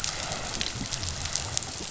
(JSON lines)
{"label": "biophony", "recorder": "SoundTrap 500"}